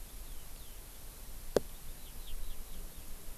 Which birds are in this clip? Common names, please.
Eurasian Skylark